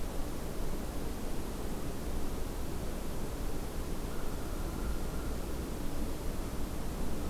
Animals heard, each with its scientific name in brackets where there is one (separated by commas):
American Crow (Corvus brachyrhynchos)